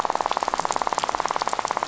{"label": "biophony, rattle", "recorder": "SoundTrap 500"}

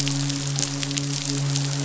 {"label": "biophony, midshipman", "recorder": "SoundTrap 500"}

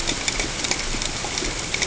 {"label": "ambient", "recorder": "HydroMoth"}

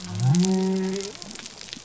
{"label": "biophony", "recorder": "SoundTrap 300"}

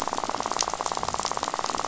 {"label": "biophony, rattle", "recorder": "SoundTrap 500"}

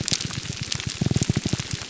{"label": "biophony, grouper groan", "recorder": "SoundTrap 300"}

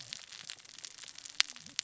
{"label": "biophony, cascading saw", "recorder": "SoundTrap 600 or HydroMoth"}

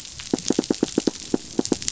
{"label": "biophony, knock", "recorder": "SoundTrap 500"}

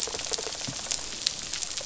{"label": "biophony, rattle response", "recorder": "SoundTrap 500"}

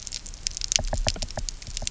{"label": "biophony, knock", "recorder": "SoundTrap 300"}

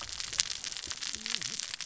{"label": "biophony, cascading saw", "recorder": "SoundTrap 600 or HydroMoth"}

